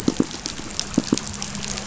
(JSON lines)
{"label": "biophony, pulse", "recorder": "SoundTrap 500"}